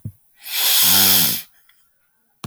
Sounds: Sniff